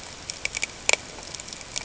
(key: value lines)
label: ambient
recorder: HydroMoth